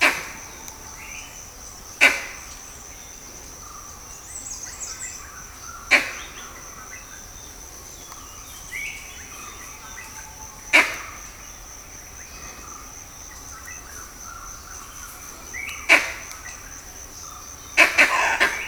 Are there birds in the background?
yes